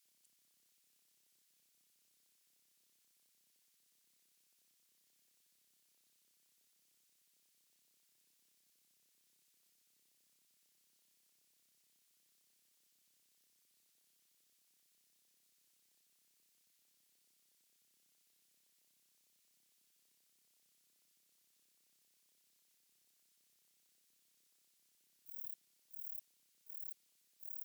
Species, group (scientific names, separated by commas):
Rhacocleis buchichii, Orthoptera